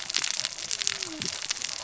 {"label": "biophony, cascading saw", "recorder": "SoundTrap 600 or HydroMoth"}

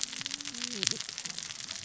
{"label": "biophony, cascading saw", "recorder": "SoundTrap 600 or HydroMoth"}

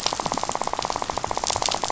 {"label": "biophony, rattle", "recorder": "SoundTrap 500"}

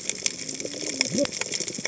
{"label": "biophony, cascading saw", "recorder": "HydroMoth"}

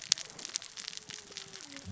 {"label": "biophony, cascading saw", "recorder": "SoundTrap 600 or HydroMoth"}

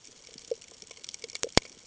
{"label": "ambient", "recorder": "HydroMoth"}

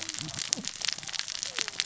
{"label": "biophony, cascading saw", "recorder": "SoundTrap 600 or HydroMoth"}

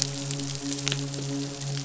{"label": "biophony, midshipman", "recorder": "SoundTrap 500"}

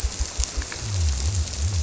{"label": "biophony", "recorder": "SoundTrap 300"}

